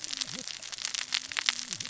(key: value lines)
label: biophony, cascading saw
recorder: SoundTrap 600 or HydroMoth